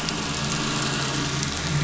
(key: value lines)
label: anthrophony, boat engine
recorder: SoundTrap 500